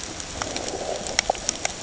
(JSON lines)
{"label": "ambient", "recorder": "HydroMoth"}